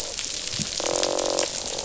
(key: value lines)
label: biophony, croak
recorder: SoundTrap 500